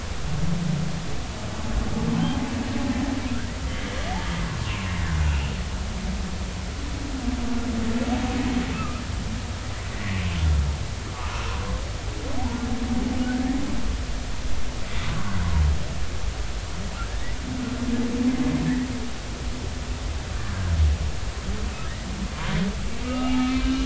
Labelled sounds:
4.6	5.5	humpback whale, 0.99 to 2.9 kHz
8.7	9.0	humpback whale, 1.2 to 1.4 kHz
9.9	10.2	humpback whale, 1.9 to 2.1 kHz
13.3	13.6	humpback whale, 1.6 to 2.0 kHz
17.0	17.4	humpback whale, 1.5 to 2.0 kHz
23.0	23.8	humpback whale, 0.80 to 3.0 kHz

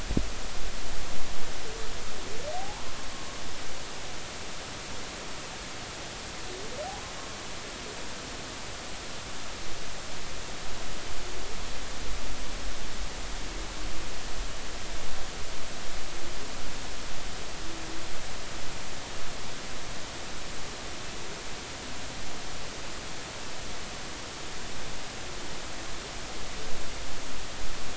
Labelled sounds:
2.5	2.9	humpback whale, 0.80 to 1.1 kHz

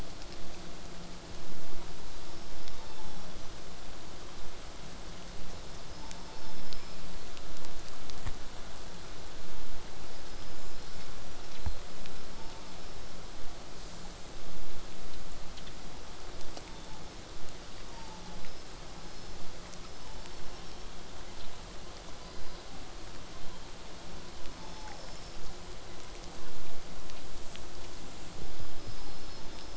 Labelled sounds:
2.0	3.6	killer whale, southern resident, 0.61 to 6.1 kHz
5.8	7.2	killer whale, southern resident, 0.73 to 5.4 kHz
10.1	13.3	killer whale, southern resident, whistle, 3.8 to 5.4 kHz
10.5	10.8	killer whale, southern resident, J pod, call S05, 5.6 to 8.0 kHz
19.7	21.7	killer whale, southern resident, 1.8 to 5.6 kHz

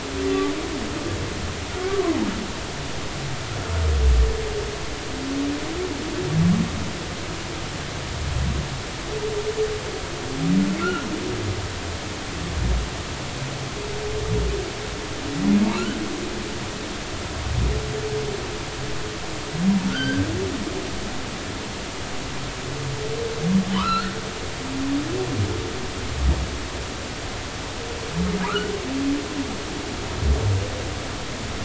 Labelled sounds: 1.9	2.3	humpback whale, 0.80 to 1.2 kHz
10.8	11.1	humpback whale, 1.3 to 1.5 kHz
19.9	20.2	humpback whale, 1.3 to 4.8 kHz
23.7	24.1	humpback whale, 0.93 to 4.5 kHz
28.4	28.7	humpback whale, 0.83 to 1.6 kHz

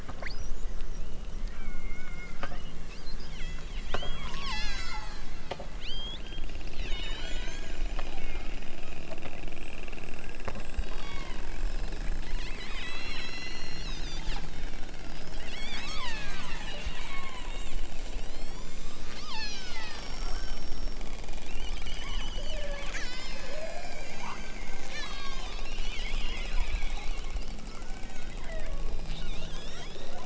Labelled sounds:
0.1	0.8	killer whale, southern Alaska resident, 1.3 to 7.3 kHz
1.4	2.4	killer whale, southern Alaska resident, 0.64 to 3.4 kHz
3.3	7.8	killer whale, southern Alaska resident, 0.64 to 8.0 kHz
10.8	11.5	killer whale, southern Alaska resident, 0.78 to 5.5 kHz
12.6	14.3	killer whale, southern Alaska resident, 1.4 to 7.8 kHz
15.3	17.6	killer whale, southern Alaska resident, 0.46 to 8.0 kHz
18.1	20.8	killer whale, southern Alaska resident, 0.50 to 8.0 kHz
21.4	23.8	killer whale, southern Alaska resident, 0.96 to 8.0 kHz
24.8	25.6	killer whale, southern Alaska resident, 0.69 to 8.0 kHz
28.4	30.2	killer whale, southern Alaska resident, 0.46 to 8.0 kHz

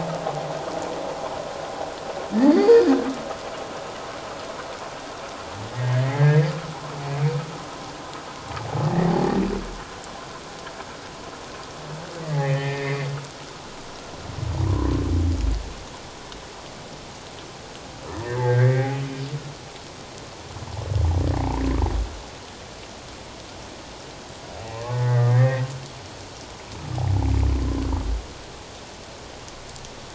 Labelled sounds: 2.5	2.7	humpback whale, 4.3 to 4.8 kHz
5.7	6.5	humpback whale, 1.6 to 2.2 kHz
8.9	9.1	humpback whale, 1.7 to 2.0 kHz
12.2	13.1	humpback whale, 1.6 to 2.6 kHz
14.7	14.9	humpback whale, 0.94 to 1.2 kHz
18.2	19.0	humpback whale, 1.5 to 2.3 kHz
24.7	25.7	humpback whale, 0.81 to 2.2 kHz

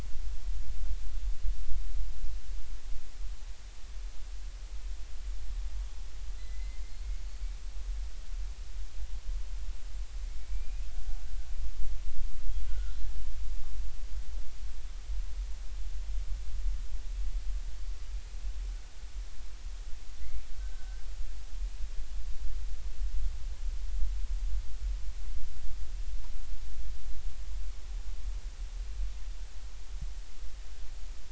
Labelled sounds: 6.4	7.5	killer whale, Bigg's (transient), 2.0 to 4.6 kHz
10.4	10.8	killer whale, Bigg's (transient), 2.2 to 2.6 kHz
12.7	13.0	killer whale, Bigg's (transient), 1.3 to 1.6 kHz
20.6	21.1	killer whale, Bigg's (transient), 1.5 to 1.6 kHz

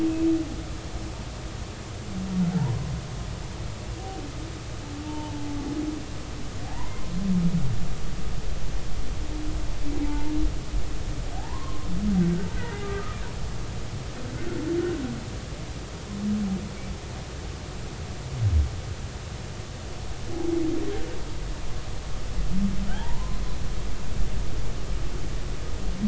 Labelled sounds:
2.5	2.9	humpback whale, 0.80 to 1.1 kHz
5.1	5.5	humpback whale, 0.83 to 3.1 kHz
6.6	6.9	humpback whale, 0.80 to 1.1 kHz
10.1	10.3	humpback whale, 0.83 to 0.96 kHz
11.3	11.9	humpback whale, 0.80 to 1.1 kHz
12.8	13.2	humpback whale, 1.2 to 1.4 kHz
22.9	23.4	humpback whale, 0.80 to 1.1 kHz

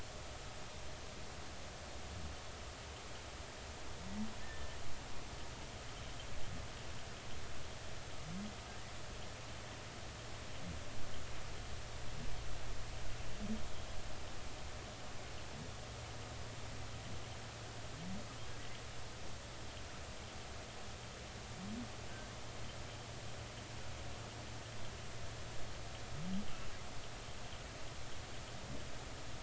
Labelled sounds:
4.4	4.8	humpback whale, 1.7 to 1.9 kHz

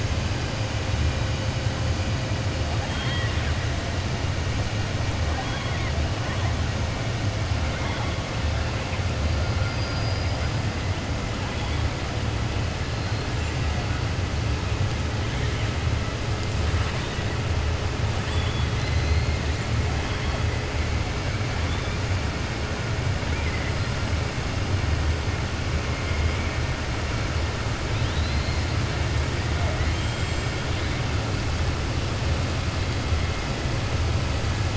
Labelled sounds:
2.8	3.5	killer whale, 0.90 to 4.3 kHz
5.2	5.9	killer whale, 0.73 to 4.1 kHz
18.2	19.3	killer whale, 3.0 to 4.4 kHz
27.8	28.7	killer whale, 2.5 to 5.2 kHz

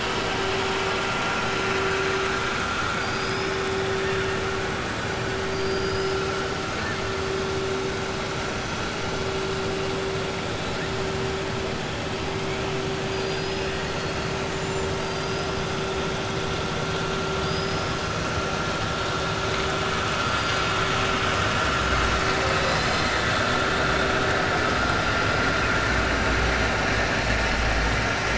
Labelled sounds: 2.9	3.5	killer whale, 4.7 to 5.3 kHz
5.5	6.2	killer whale, 4.7 to 5.4 kHz
13.0	13.7	killer whale, 3.5 to 5.7 kHz
14.4	15.5	killer whale, 4.1 to 7.6 kHz
17.3	17.9	killer whale, 4.1 to 5.3 kHz

